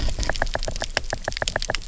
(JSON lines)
{"label": "biophony, knock", "recorder": "SoundTrap 300"}